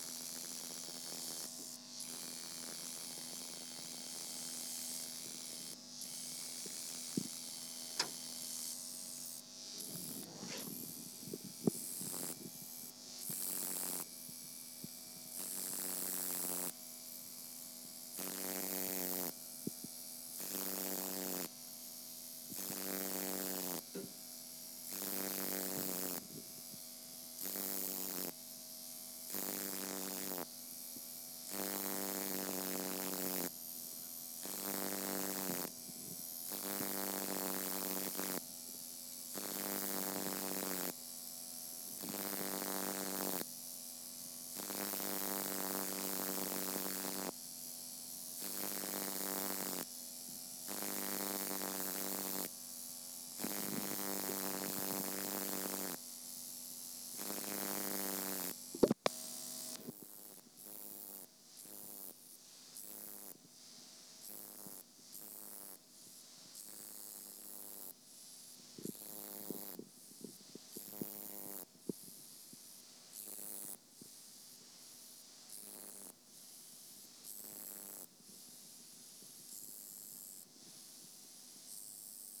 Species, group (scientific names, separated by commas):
Roeseliana roeselii, Orthoptera